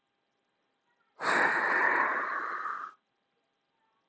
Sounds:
Sigh